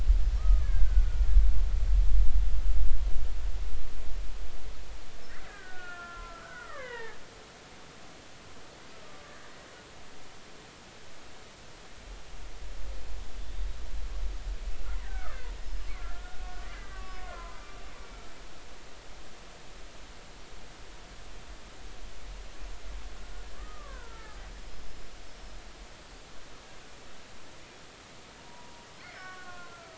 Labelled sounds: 0.4	1.3	killer whale, Bigg's (transient), 1.1 to 1.8 kHz
5.3	7.2	killer whale, Bigg's (transient), 0.80 to 3.1 kHz
9.3	9.5	killer whale, Bigg's (transient), 1.6 to 1.9 kHz
15.0	17.6	killer whale, Bigg's (transient), 0.90 to 5.3 kHz
22.4	22.8	killer whale, Bigg's (transient), 6.0 to 6.5 kHz
23.6	24.4	killer whale, Bigg's (transient), 0.90 to 1.7 kHz
28.4	29.9	killer whale, Bigg's (transient), 0.90 to 2.2 kHz

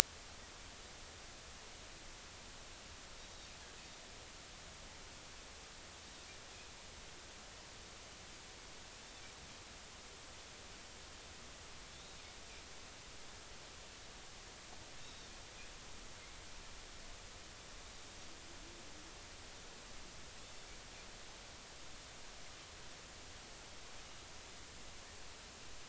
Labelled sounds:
15.0	15.3	Pacific white-sided dolphin, 3.5 to 3.9 kHz

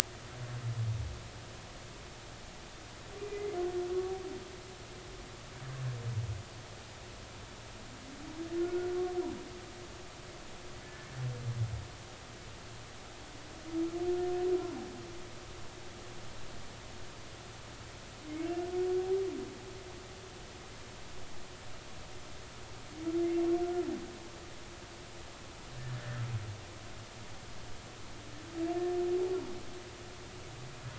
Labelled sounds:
3.2	3.6	humpback whale, 2.0 to 2.5 kHz
8.6	8.9	humpback whale, 1.4 to 1.5 kHz
10.8	11.1	humpback whale, 1.7 to 1.8 kHz

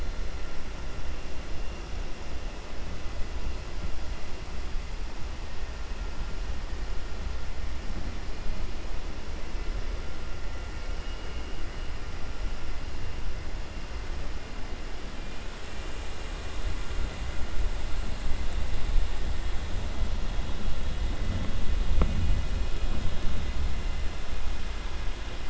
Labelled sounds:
11.0	11.4	vessel noise, 2.2 to 2.9 kHz

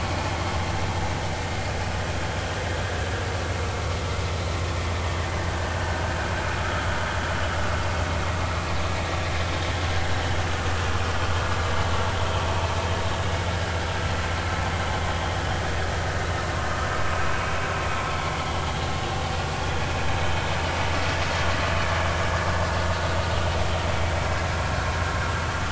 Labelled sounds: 5.8	6.0	vessel noise, 1.4 to 1.7 kHz
6.6	6.9	vessel noise, 1.2 to 1.5 kHz

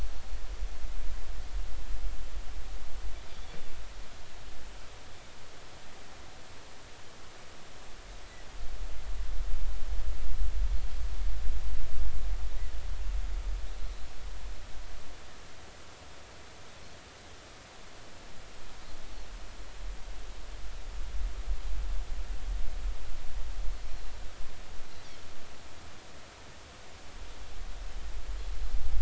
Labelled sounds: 3.3	3.6	Pacific white-sided dolphin, 3.3 to 3.6 kHz
23.9	24.1	Pacific white-sided dolphin, 4.0 to 4.3 kHz

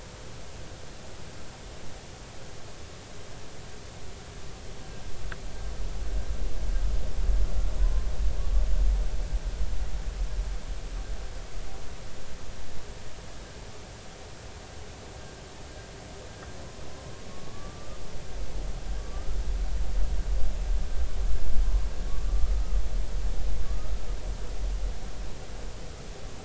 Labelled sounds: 7.8	8.0	humpback whale, 0.96 to 1.1 kHz
17.3	18.0	humpback whale, 1.1 to 1.3 kHz
19.0	19.4	humpback whale, 1.1 to 1.4 kHz
22.1	22.3	humpback whale, 1.1 to 1.2 kHz
23.7	24.0	humpback whale, 1.1 to 1.4 kHz

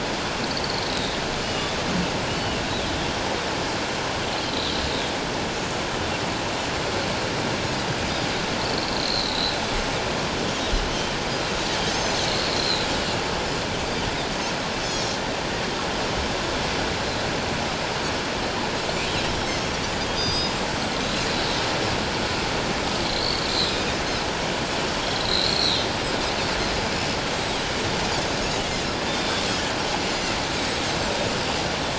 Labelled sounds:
0.4	1.7	Pacific white-sided dolphin, 2.8 to 4.6 kHz
2.3	2.6	Pacific white-sided dolphin, 2.7 to 3.0 kHz
4.5	4.8	Pacific white-sided dolphin, 3.8 to 4.2 kHz
9.0	9.6	Pacific white-sided dolphin, 3.7 to 4.4 kHz
11.9	12.2	Pacific white-sided dolphin, 5.9 to 6.4 kHz
12.5	12.8	Pacific white-sided dolphin, 3.8 to 4.3 kHz
14.8	15.1	Pacific white-sided dolphin, 3.2 to 6.2 kHz
20.1	20.6	Pacific white-sided dolphin, 3.5 to 6.2 kHz
23.0	23.8	Pacific white-sided dolphin, 3.5 to 7.6 kHz
25.0	25.9	Pacific white-sided dolphin, 3.5 to 7.8 kHz
29.1	29.4	Pacific white-sided dolphin, 3.4 to 3.7 kHz
30.5	30.8	Pacific white-sided dolphin, 3.7 to 4.0 kHz

